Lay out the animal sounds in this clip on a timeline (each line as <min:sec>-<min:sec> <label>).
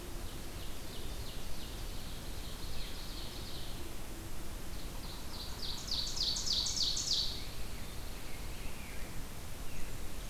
0:00.0-0:03.8 Ovenbird (Seiurus aurocapilla)
0:04.5-0:07.5 Ovenbird (Seiurus aurocapilla)
0:06.2-0:09.1 Rose-breasted Grosbeak (Pheucticus ludovicianus)
0:07.3-0:08.8 Pine Warbler (Setophaga pinus)
0:09.5-0:10.0 Veery (Catharus fuscescens)